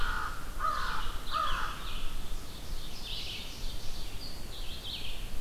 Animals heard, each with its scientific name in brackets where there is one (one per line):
Ovenbird (Seiurus aurocapilla)
Red-eyed Vireo (Vireo olivaceus)
American Crow (Corvus brachyrhynchos)